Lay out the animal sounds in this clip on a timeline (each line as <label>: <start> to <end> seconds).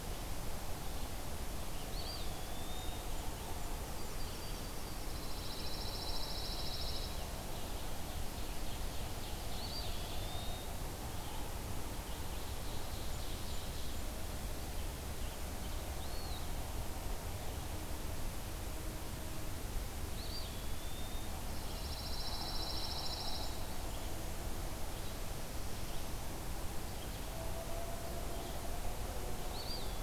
Red-eyed Vireo (Vireo olivaceus): 0.0 to 30.0 seconds
Eastern Wood-Pewee (Contopus virens): 1.7 to 3.0 seconds
Blackburnian Warbler (Setophaga fusca): 2.4 to 4.3 seconds
Yellow-rumped Warbler (Setophaga coronata): 3.8 to 5.1 seconds
Pine Warbler (Setophaga pinus): 5.1 to 7.2 seconds
Ovenbird (Seiurus aurocapilla): 7.0 to 10.2 seconds
Eastern Wood-Pewee (Contopus virens): 9.4 to 10.7 seconds
Ovenbird (Seiurus aurocapilla): 12.3 to 14.1 seconds
Blackburnian Warbler (Setophaga fusca): 12.3 to 14.1 seconds
Eastern Wood-Pewee (Contopus virens): 15.8 to 16.5 seconds
Eastern Wood-Pewee (Contopus virens): 20.0 to 21.3 seconds
Pine Warbler (Setophaga pinus): 21.4 to 23.5 seconds
Blackburnian Warbler (Setophaga fusca): 22.5 to 24.1 seconds
Eastern Wood-Pewee (Contopus virens): 29.4 to 30.0 seconds